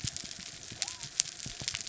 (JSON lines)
{"label": "biophony", "recorder": "SoundTrap 300"}